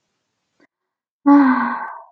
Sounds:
Sigh